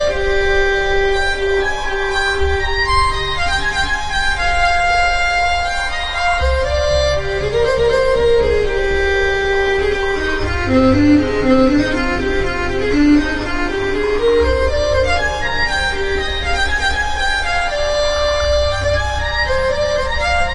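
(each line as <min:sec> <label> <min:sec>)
0:00.0 A violin is playing a piece of music. 0:20.5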